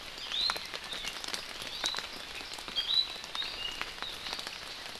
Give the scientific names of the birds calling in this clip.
Drepanis coccinea